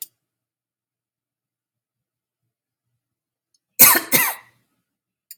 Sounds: Cough